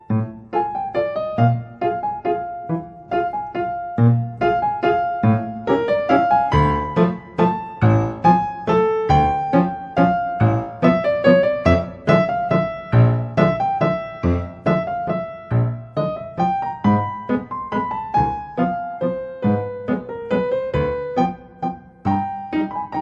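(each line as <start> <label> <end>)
0.0 A piano plays steadily and rhythmically at a constant speed. 23.0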